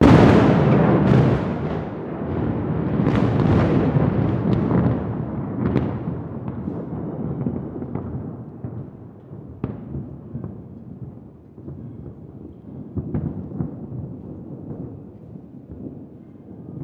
Could it be lighting?
yes